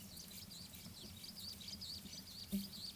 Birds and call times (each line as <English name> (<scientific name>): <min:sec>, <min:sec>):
Superb Starling (Lamprotornis superbus): 0:01.9